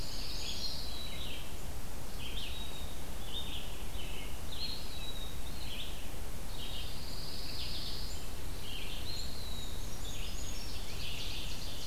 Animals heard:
Red-eyed Vireo (Vireo olivaceus), Eastern Wood-Pewee (Contopus virens), Ovenbird (Seiurus aurocapilla), Brown Creeper (Certhia americana), Pine Warbler (Setophaga pinus)

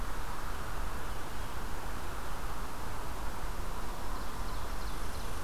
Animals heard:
Ovenbird (Seiurus aurocapilla), Red Squirrel (Tamiasciurus hudsonicus)

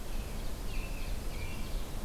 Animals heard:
American Robin (Turdus migratorius), Ovenbird (Seiurus aurocapilla), Blue-headed Vireo (Vireo solitarius)

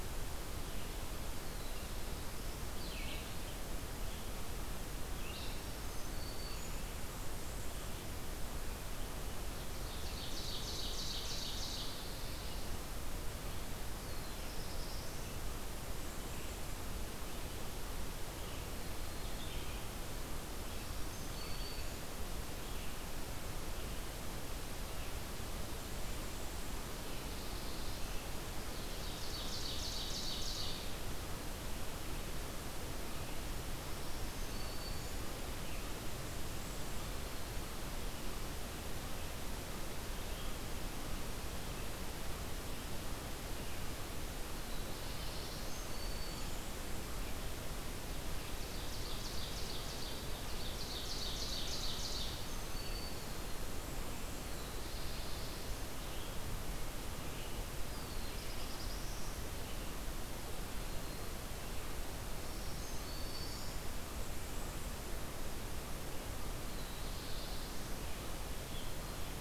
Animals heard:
Red-eyed Vireo (Vireo olivaceus), Blackburnian Warbler (Setophaga fusca), Ovenbird (Seiurus aurocapilla), Hermit Thrush (Catharus guttatus), Black-throated Blue Warbler (Setophaga caerulescens), Black-throated Green Warbler (Setophaga virens), Black-and-white Warbler (Mniotilta varia)

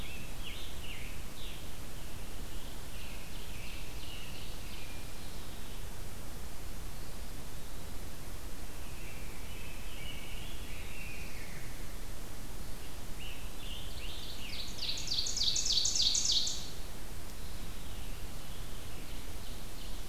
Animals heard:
American Robin (Turdus migratorius), Scarlet Tanager (Piranga olivacea), Ovenbird (Seiurus aurocapilla), Rose-breasted Grosbeak (Pheucticus ludovicianus)

